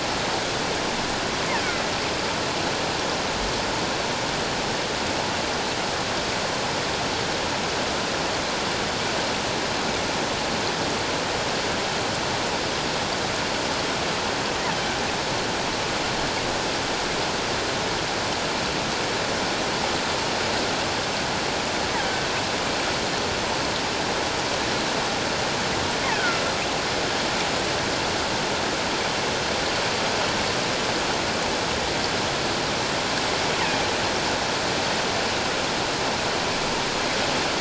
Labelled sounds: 22.0	22.3	killer whale, offshore, call OFF17, 1.5 to 1.7 kHz
26.0	26.4	killer whale, offshore, call OFF17, 1.3 to 2.2 kHz

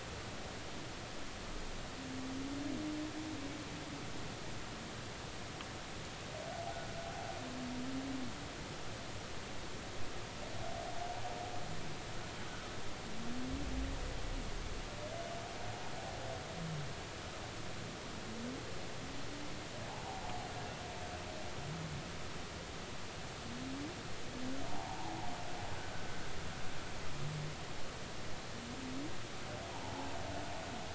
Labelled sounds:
24.7	25.3	humpback whale, 0.80 to 0.99 kHz
29.8	30.1	humpback whale, 0.80 to 0.99 kHz

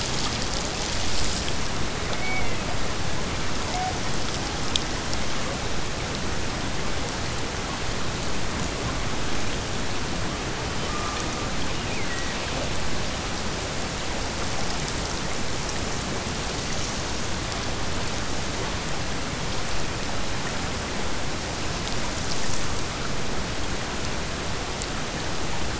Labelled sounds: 11.6	12.6	killer whale, Bigg's (transient), Gulf of Alaska transient, 1.7 to 3.0 kHz

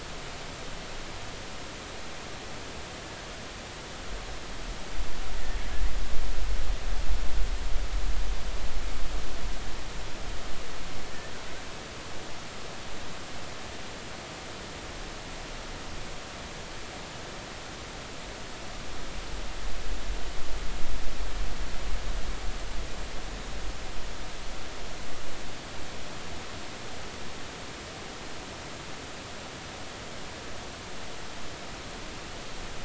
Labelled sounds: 11.1	11.3	killer whale, offshore, 1.7 to 1.9 kHz

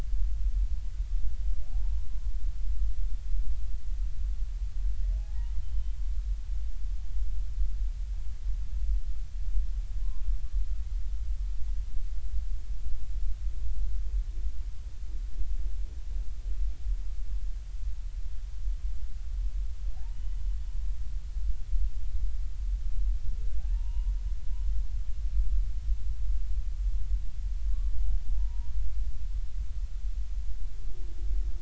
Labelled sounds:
1.7	2.1	humpback whale, 0.80 to 1.0 kHz
5.2	5.5	humpback whale, 0.80 to 0.99 kHz
6.6	6.9	humpback whale, 2.9 to 3.1 kHz
10.0	10.2	humpback whale, 0.93 to 1.1 kHz
19.9	20.2	humpback whale, 0.80 to 0.99 kHz
23.6	24.1	humpback whale, 0.80 to 2.9 kHz
27.7	27.9	humpback whale, 1.1 to 1.2 kHz
28.3	28.7	humpback whale, 0.80 to 1.0 kHz

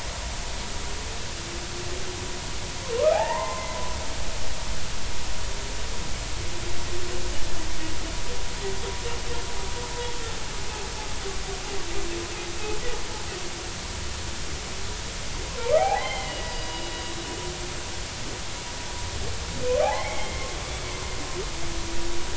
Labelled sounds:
3.1	3.7	humpback whale, 0.80 to 2.1 kHz
15.8	16.9	humpback whale, 0.80 to 4.9 kHz
19.8	20.5	humpback whale, 0.80 to 2.3 kHz

